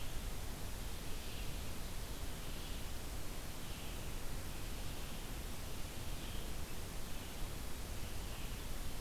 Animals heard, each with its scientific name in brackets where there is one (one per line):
Red-eyed Vireo (Vireo olivaceus)